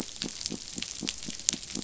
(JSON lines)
{"label": "biophony", "recorder": "SoundTrap 500"}